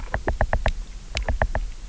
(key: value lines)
label: biophony, knock
recorder: SoundTrap 300